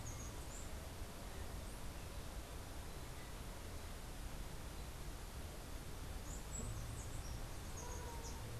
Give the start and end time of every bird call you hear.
[0.00, 0.83] Chestnut-capped Brushfinch (Arremon brunneinucha)
[6.04, 8.54] Chestnut-capped Brushfinch (Arremon brunneinucha)

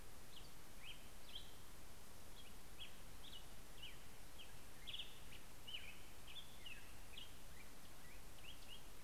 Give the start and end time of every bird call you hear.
[0.00, 8.96] Black-headed Grosbeak (Pheucticus melanocephalus)

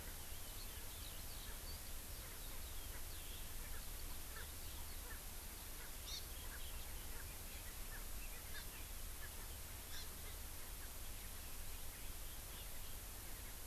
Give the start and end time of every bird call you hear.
[4.30, 4.50] Erckel's Francolin (Pternistis erckelii)
[5.00, 5.20] Erckel's Francolin (Pternistis erckelii)
[5.90, 6.40] Hawaii Amakihi (Chlorodrepanis virens)
[8.50, 8.70] Hawaii Amakihi (Chlorodrepanis virens)
[9.80, 10.20] Hawaii Amakihi (Chlorodrepanis virens)

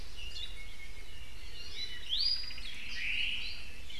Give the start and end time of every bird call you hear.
[0.30, 0.70] Hawaii Creeper (Loxops mana)
[1.30, 2.70] Iiwi (Drepanis coccinea)
[2.20, 3.80] Omao (Myadestes obscurus)

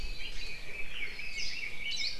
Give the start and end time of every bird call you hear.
[0.10, 2.19] Red-billed Leiothrix (Leiothrix lutea)
[1.30, 2.19] Hawaii Creeper (Loxops mana)

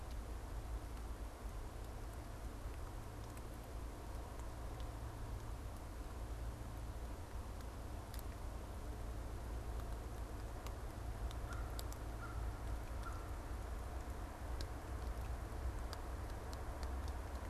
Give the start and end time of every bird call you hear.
[11.41, 13.51] American Crow (Corvus brachyrhynchos)

